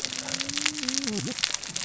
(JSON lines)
{"label": "biophony, cascading saw", "recorder": "SoundTrap 600 or HydroMoth"}